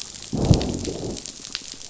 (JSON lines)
{"label": "biophony, growl", "recorder": "SoundTrap 500"}